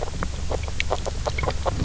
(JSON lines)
{"label": "biophony, grazing", "recorder": "SoundTrap 300"}